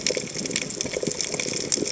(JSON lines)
{"label": "biophony, chatter", "recorder": "HydroMoth"}